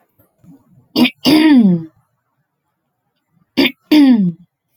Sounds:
Throat clearing